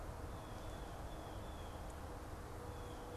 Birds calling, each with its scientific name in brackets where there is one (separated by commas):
Blue Jay (Cyanocitta cristata)